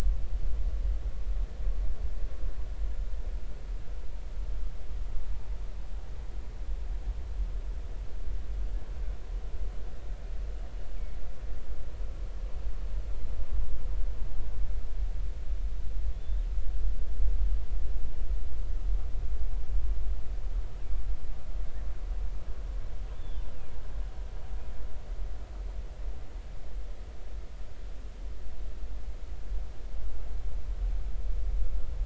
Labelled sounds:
16.1	16.5	killer whale, northern resident, 3.4 to 3.8 kHz
23.1	23.5	killer whale, northern resident, 3.0 to 3.6 kHz

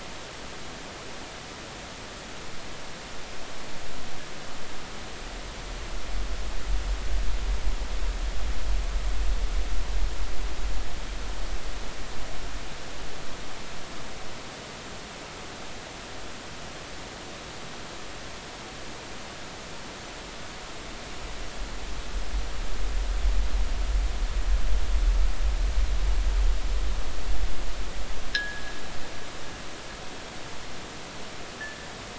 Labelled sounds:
28.3	28.7	fishing gear, 1.5 to 1.9 kHz

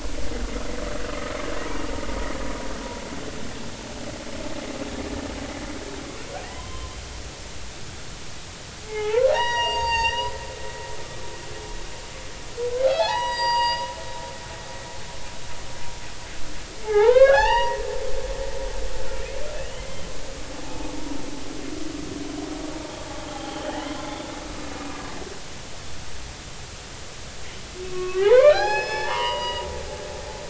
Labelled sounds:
6.5	7.0	humpback whale, 0.93 to 3.2 kHz
8.8	10.3	humpback whale, 0.80 to 7.5 kHz
12.8	13.9	humpback whale, 0.80 to 7.7 kHz
16.8	17.8	humpback whale, 0.80 to 5.8 kHz
18.9	19.3	humpback whale, 1.3 to 1.6 kHz
19.8	20.0	humpback whale, 2.0 to 2.1 kHz
23.3	24.0	humpback whale, 0.80 to 3.3 kHz
27.8	29.7	humpback whale, 0.80 to 6.8 kHz

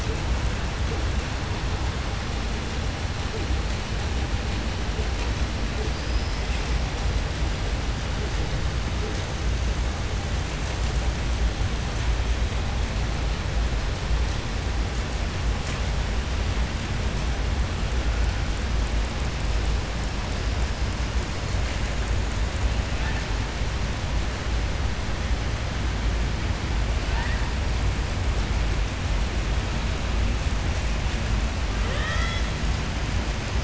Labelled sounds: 5.9	6.4	killer whale, southern resident, 4.6 to 5.3 kHz

